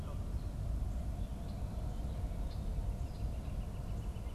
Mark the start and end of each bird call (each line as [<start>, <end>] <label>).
[2.97, 4.34] Northern Flicker (Colaptes auratus)